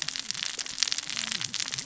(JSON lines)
{"label": "biophony, cascading saw", "recorder": "SoundTrap 600 or HydroMoth"}